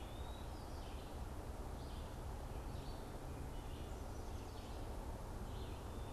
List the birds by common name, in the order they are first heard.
Eastern Wood-Pewee, Red-eyed Vireo